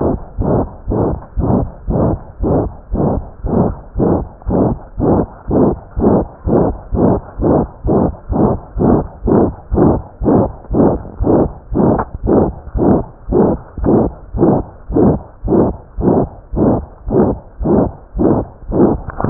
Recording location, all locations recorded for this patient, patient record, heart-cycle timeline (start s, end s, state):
aortic valve (AV)
aortic valve (AV)+pulmonary valve (PV)+tricuspid valve (TV)+mitral valve (MV)
#Age: Child
#Sex: Female
#Height: 84.0 cm
#Weight: 10.9 kg
#Pregnancy status: False
#Murmur: Present
#Murmur locations: aortic valve (AV)+mitral valve (MV)+pulmonary valve (PV)+tricuspid valve (TV)
#Most audible location: aortic valve (AV)
#Systolic murmur timing: Holosystolic
#Systolic murmur shape: Diamond
#Systolic murmur grading: III/VI or higher
#Systolic murmur pitch: High
#Systolic murmur quality: Harsh
#Diastolic murmur timing: nan
#Diastolic murmur shape: nan
#Diastolic murmur grading: nan
#Diastolic murmur pitch: nan
#Diastolic murmur quality: nan
#Outcome: Abnormal
#Campaign: 2015 screening campaign
0.00	0.18	unannotated
0.18	0.38	diastole
0.38	0.48	S1
0.48	0.57	systole
0.57	0.68	S2
0.68	0.88	diastole
0.88	1.00	S1
1.00	1.06	systole
1.06	1.18	S2
1.18	1.36	diastole
1.36	1.48	S1
1.48	1.54	systole
1.54	1.70	S2
1.70	1.88	diastole
1.88	2.02	S1
2.02	2.09	systole
2.09	2.20	S2
2.20	2.39	diastole
2.39	2.50	S1
2.50	2.62	systole
2.62	2.70	S2
2.70	2.88	diastole
2.88	3.04	S1
3.04	3.14	systole
3.14	3.26	S2
3.26	3.44	diastole
3.44	3.53	S1
3.53	3.63	systole
3.63	3.74	S2
3.74	3.96	diastole
3.96	4.05	S1
4.05	4.16	systole
4.16	4.26	S2
4.26	4.44	diastole
4.44	4.55	S1
4.55	4.64	systole
4.64	4.76	S2
4.76	4.98	diastole
4.98	5.08	S1
5.08	5.19	systole
5.19	5.30	S2
5.30	5.46	diastole
5.46	5.55	S1
5.55	5.67	systole
5.67	5.80	S2
5.80	5.96	diastole
5.96	6.06	S1
6.06	6.16	systole
6.16	6.26	S2
6.26	6.42	diastole
6.42	6.53	S1
6.53	6.63	systole
6.63	6.74	S2
6.74	6.92	diastole
6.92	7.01	S1
7.01	7.13	systole
7.13	7.22	S2
7.22	7.38	diastole
7.38	7.47	S1
7.47	7.57	systole
7.57	7.68	S2
7.68	7.83	diastole
7.83	7.94	S1
7.94	8.06	systole
8.06	8.16	S2
8.16	8.29	diastole
8.29	8.36	S1
8.36	8.52	systole
8.52	8.62	S2
8.62	8.76	diastole
8.76	8.85	S1
8.85	8.97	systole
8.97	9.08	S2
9.08	9.24	diastole
9.24	9.33	S1
9.33	9.42	systole
9.42	9.54	S2
9.54	9.71	diastole
9.71	9.82	S1
9.82	9.92	systole
9.92	10.02	S2
10.02	10.19	diastole
10.19	10.29	S1
10.29	10.43	systole
10.43	10.51	S2
10.51	10.69	diastole
10.69	10.78	S1
10.78	10.91	systole
10.91	11.02	S2
11.02	11.18	diastole
11.18	11.28	S1
11.28	11.42	systole
11.42	11.52	S2
11.52	11.69	diastole
11.69	11.80	S1
11.80	11.92	systole
11.92	12.02	S2
12.02	12.21	diastole
12.21	12.33	S1
12.33	12.43	systole
12.43	12.56	S2
12.56	12.73	diastole
12.73	12.84	S1
12.84	12.96	systole
12.96	13.08	S2
13.08	13.26	diastole
13.26	13.37	S1
13.37	13.50	systole
13.50	13.62	S2
13.62	13.79	diastole
13.79	13.90	S1
13.90	14.04	systole
14.04	14.14	S2
14.14	14.34	diastole
14.34	14.43	S1
14.43	14.57	systole
14.57	14.70	S2
14.70	14.87	diastole
14.87	14.98	S1
14.98	15.12	systole
15.12	15.22	S2
15.22	15.41	diastole
15.41	15.52	S1
15.52	15.66	systole
15.66	15.77	S2
15.77	15.95	diastole
15.95	16.07	S1
16.07	16.19	systole
16.19	16.29	S2
16.29	16.50	diastole
16.50	16.62	S1
16.62	16.77	systole
16.77	16.90	S2
16.90	17.04	diastole
17.04	17.17	S1
17.17	17.28	systole
17.28	17.40	S2
17.40	17.60	diastole
17.60	17.71	S1
17.71	17.83	systole
17.83	17.96	S2
17.96	18.14	diastole
18.14	18.27	S1
18.27	18.37	systole
18.37	18.50	S2
18.50	18.68	diastole
18.68	19.30	unannotated